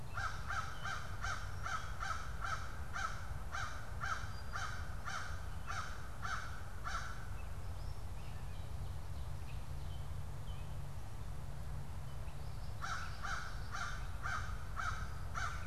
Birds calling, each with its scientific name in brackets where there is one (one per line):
Gray Catbird (Dumetella carolinensis)
American Crow (Corvus brachyrhynchos)